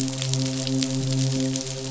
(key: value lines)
label: biophony, midshipman
recorder: SoundTrap 500